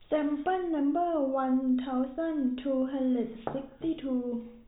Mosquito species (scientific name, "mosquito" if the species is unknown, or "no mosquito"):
no mosquito